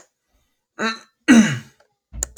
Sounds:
Throat clearing